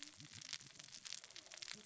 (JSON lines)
{"label": "biophony, cascading saw", "recorder": "SoundTrap 600 or HydroMoth"}